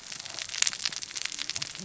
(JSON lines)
{"label": "biophony, cascading saw", "recorder": "SoundTrap 600 or HydroMoth"}